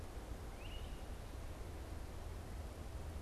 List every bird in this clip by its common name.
Great Crested Flycatcher